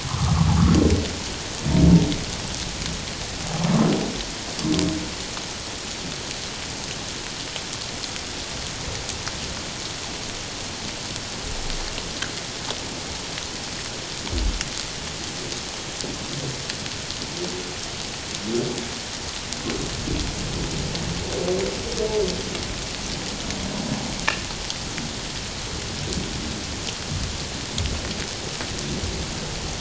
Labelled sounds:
0.0	0.4	humpback whale, 0.97 to 1.4 kHz

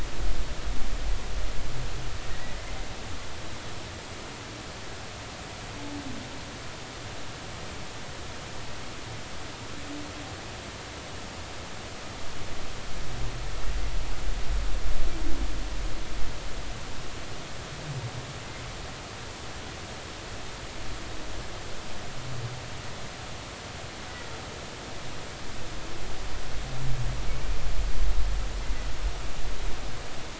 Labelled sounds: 2.3	2.6	humpback whale, 1.8 to 2.0 kHz

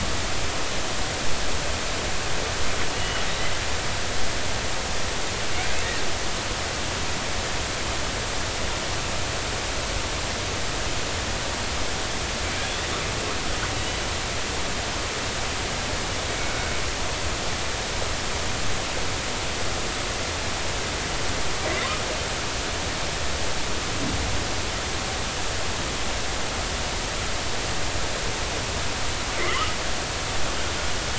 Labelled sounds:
2.9	3.2	killer whale, northern resident, G clan, 2.8 to 3.0 kHz

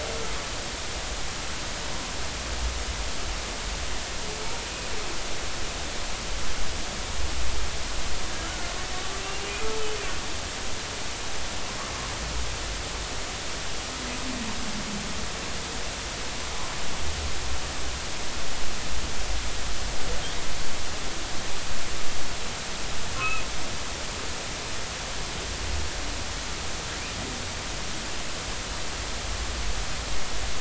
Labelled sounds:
8.4	10.0	humpback whale, 1.1 to 2.9 kHz
23.2	23.4	humpback whale, 1.2 to 2.8 kHz

